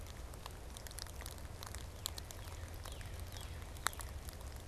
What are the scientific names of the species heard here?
Cardinalis cardinalis